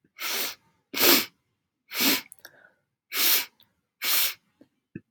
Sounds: Sniff